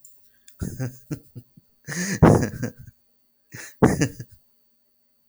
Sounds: Laughter